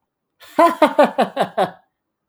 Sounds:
Laughter